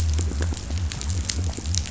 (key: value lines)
label: biophony
recorder: SoundTrap 500